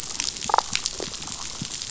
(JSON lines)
{"label": "biophony, damselfish", "recorder": "SoundTrap 500"}